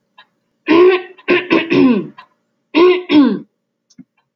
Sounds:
Throat clearing